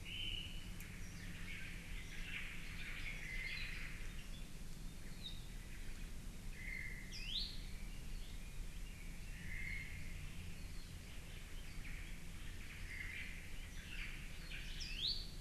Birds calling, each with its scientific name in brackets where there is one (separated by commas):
Omao (Myadestes obscurus), Apapane (Himatione sanguinea), Iiwi (Drepanis coccinea)